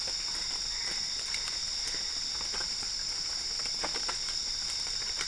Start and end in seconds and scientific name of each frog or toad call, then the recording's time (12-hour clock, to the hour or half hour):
0.2	1.6	Boana albopunctata
~2am